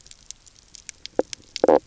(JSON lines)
{"label": "biophony, knock croak", "recorder": "SoundTrap 300"}